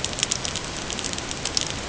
{"label": "ambient", "recorder": "HydroMoth"}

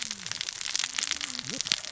{"label": "biophony, cascading saw", "recorder": "SoundTrap 600 or HydroMoth"}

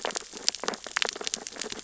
{"label": "biophony, sea urchins (Echinidae)", "recorder": "SoundTrap 600 or HydroMoth"}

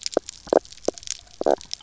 {"label": "biophony, knock croak", "recorder": "SoundTrap 300"}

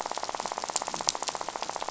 {"label": "biophony, rattle", "recorder": "SoundTrap 500"}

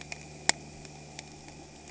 {"label": "anthrophony, boat engine", "recorder": "HydroMoth"}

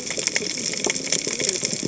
{"label": "biophony, cascading saw", "recorder": "HydroMoth"}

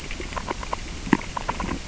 {"label": "biophony, grazing", "recorder": "SoundTrap 600 or HydroMoth"}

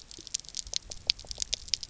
{"label": "biophony, pulse", "recorder": "SoundTrap 300"}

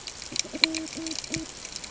{"label": "ambient", "recorder": "HydroMoth"}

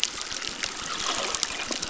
{"label": "biophony, crackle", "recorder": "SoundTrap 600"}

